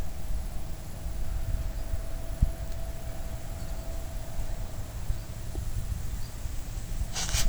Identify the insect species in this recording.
Tettigonia viridissima